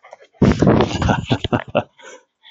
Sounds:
Laughter